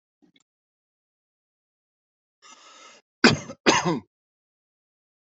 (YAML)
expert_labels:
- quality: good
  cough_type: wet
  dyspnea: false
  wheezing: false
  stridor: false
  choking: false
  congestion: false
  nothing: true
  diagnosis: lower respiratory tract infection
  severity: mild